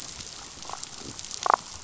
{"label": "biophony, damselfish", "recorder": "SoundTrap 500"}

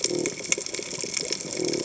{"label": "biophony", "recorder": "HydroMoth"}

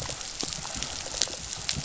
{"label": "biophony, rattle response", "recorder": "SoundTrap 500"}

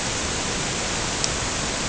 {"label": "ambient", "recorder": "HydroMoth"}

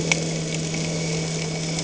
{"label": "anthrophony, boat engine", "recorder": "HydroMoth"}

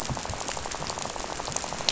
{"label": "biophony, rattle", "recorder": "SoundTrap 500"}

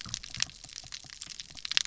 {"label": "biophony", "recorder": "SoundTrap 300"}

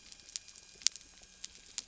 {"label": "anthrophony, boat engine", "recorder": "SoundTrap 300"}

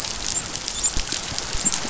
{"label": "biophony, dolphin", "recorder": "SoundTrap 500"}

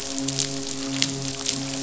{"label": "biophony, midshipman", "recorder": "SoundTrap 500"}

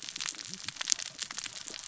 {"label": "biophony, cascading saw", "recorder": "SoundTrap 600 or HydroMoth"}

